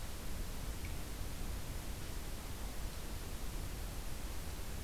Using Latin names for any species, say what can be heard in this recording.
forest ambience